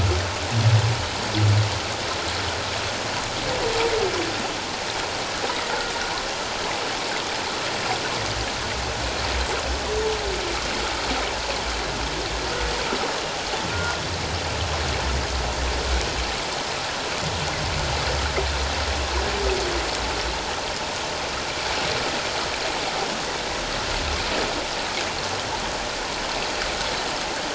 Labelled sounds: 13.7	14.0	humpback whale, 1.3 to 1.5 kHz

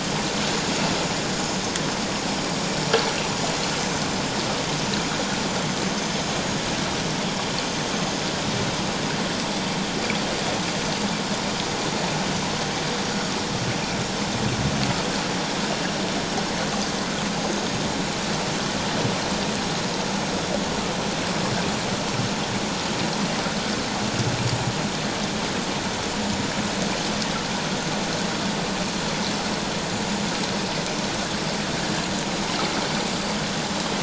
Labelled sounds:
17.5	17.8	vessel noise, 6.3 to 6.6 kHz
26.2	26.5	vessel noise, 7.0 to 7.2 kHz

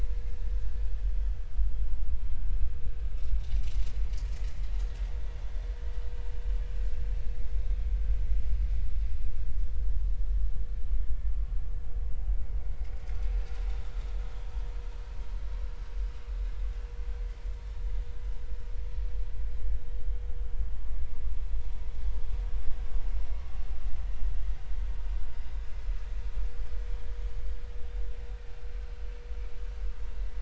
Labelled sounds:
12.8	13.1	vessel noise, 5.1 to 5.2 kHz

